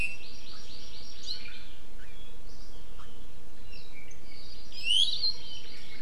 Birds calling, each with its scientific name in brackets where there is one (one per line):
Iiwi (Drepanis coccinea)
Hawaii Amakihi (Chlorodrepanis virens)